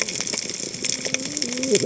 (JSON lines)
{"label": "biophony, cascading saw", "recorder": "HydroMoth"}